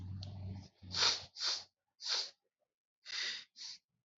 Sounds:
Sniff